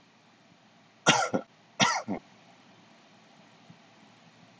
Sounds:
Cough